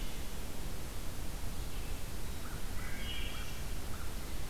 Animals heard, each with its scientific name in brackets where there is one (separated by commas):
Wood Thrush (Hylocichla mustelina), American Crow (Corvus brachyrhynchos)